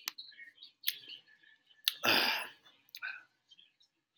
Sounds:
Throat clearing